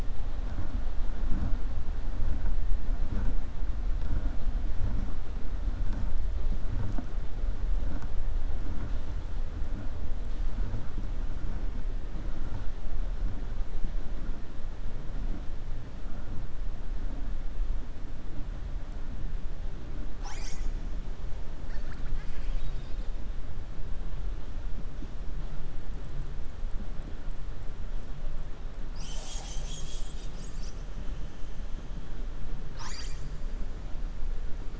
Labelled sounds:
21.6	23.1	killer whale, 1.2 to 5.0 kHz

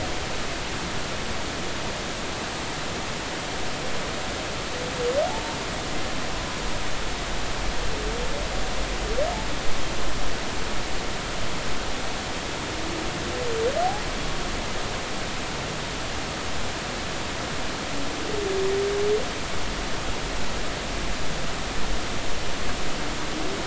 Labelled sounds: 5.2	5.6	humpback whale, 0.80 to 0.96 kHz

